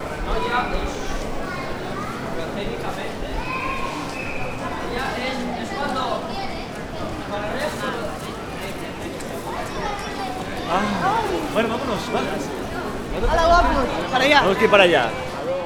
do the people sound like they are outdoors?
no